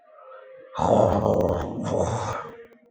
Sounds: Throat clearing